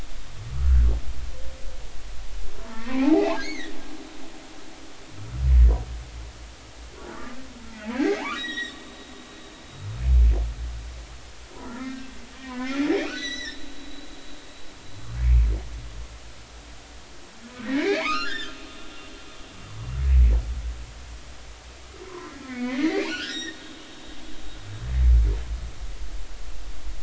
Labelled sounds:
0.5	0.9	humpback whale, 1.2 to 1.7 kHz
2.6	3.7	humpback whale, 0.80 to 6.7 kHz
5.2	5.4	humpback whale, 1.2 to 1.5 kHz
7.0	7.3	humpback whale, 1.3 to 1.5 kHz
7.9	8.8	humpback whale, 0.80 to 7.7 kHz
11.6	12.1	humpback whale, 1.2 to 2.0 kHz
12.4	13.7	humpback whale, 0.93 to 6.1 kHz
17.6	18.5	humpback whale, 0.80 to 3.7 kHz
22.0	23.6	humpback whale, 0.93 to 7.6 kHz

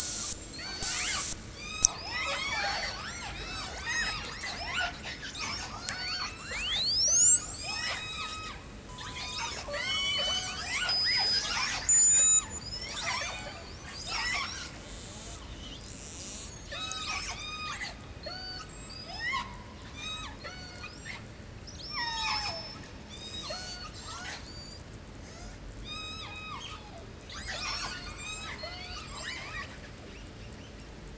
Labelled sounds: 0.0	1.9	abiotic sound, 0.43 to 8.0 kHz
0.0	6.7	killer whale, 0.31 to 8.0 kHz
6.4	17.4	abiotic sound, 0.27 to 8.0 kHz
7.0	14.7	killer whale, 0.38 to 8.0 kHz
14.8	15.5	killer whale, southern resident, 0.35 to 8.0 kHz
15.8	16.5	killer whale, southern resident, 0.27 to 8.0 kHz
16.7	18.1	killer whale, southern resident, J pod, call S44, 0.31 to 8.0 kHz
18.1	19.0	killer whale, southern resident, J pod, call S42, 0.35 to 8.0 kHz
19.0	19.7	killer whale, 0.23 to 8.0 kHz
19.8	20.4	killer whale, southern resident, 0.41 to 8.0 kHz
20.4	21.2	killer whale, southern resident, J pod, call S42, 0.31 to 8.0 kHz
21.6	22.8	killer whale, southern resident, call S36, 0.25 to 8.0 kHz
23.0	23.5	killer whale, southern resident, J pod, call S44, 0.25 to 8.0 kHz
23.1	24.8	killer whale, southern resident, 0.48 to 8.0 kHz
23.4	24.2	killer whale, southern resident, J pod, call S42, 0.30 to 8.0 kHz
25.1	25.6	killer whale, southern resident, 0.27 to 8.0 kHz
25.8	26.8	killer whale, southern resident, J pod, call S44, 0.48 to 8.0 kHz
27.2	29.8	killer whale, 0.31 to 8.0 kHz

